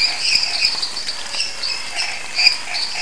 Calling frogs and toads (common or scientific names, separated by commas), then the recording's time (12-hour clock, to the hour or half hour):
Chaco tree frog, lesser tree frog, dwarf tree frog, Pithecopus azureus
~9pm